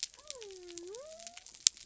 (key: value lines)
label: biophony
recorder: SoundTrap 300